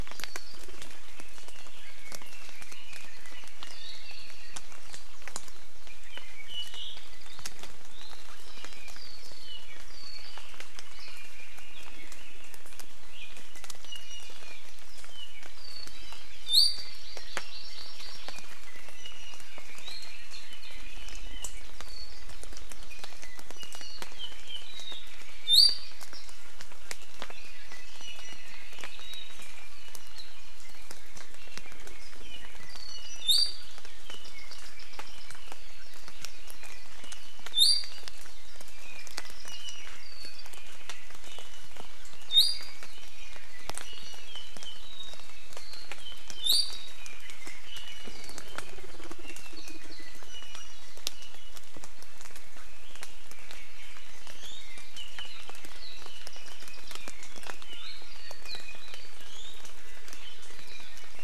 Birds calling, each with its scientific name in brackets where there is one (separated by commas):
Hawaii Amakihi (Chlorodrepanis virens), Warbling White-eye (Zosterops japonicus), Apapane (Himatione sanguinea), Iiwi (Drepanis coccinea), Red-billed Leiothrix (Leiothrix lutea)